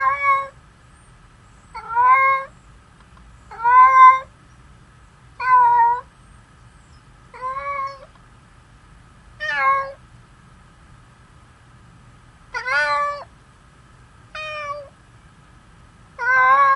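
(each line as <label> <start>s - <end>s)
A cat meows shortly. 0.0s - 0.7s
A cat meows. 1.7s - 2.6s
A cat meows loudly. 3.5s - 4.2s
A cat meows. 5.3s - 6.0s
A cat meows weakly. 7.3s - 8.1s
A cat meows. 9.3s - 10.0s
A cat meows. 12.4s - 13.3s
A quiet meow. 14.3s - 14.9s
A cat meows loudly. 16.1s - 16.8s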